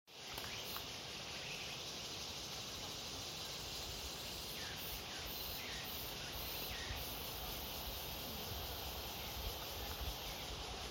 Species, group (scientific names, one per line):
Meimuna opalifera
Cicadidae